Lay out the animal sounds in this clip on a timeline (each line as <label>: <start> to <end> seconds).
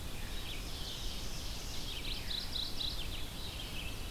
Red-eyed Vireo (Vireo olivaceus): 0.0 to 4.1 seconds
Ovenbird (Seiurus aurocapilla): 0.2 to 2.1 seconds
Mourning Warbler (Geothlypis philadelphia): 1.9 to 3.4 seconds
Veery (Catharus fuscescens): 2.1 to 2.4 seconds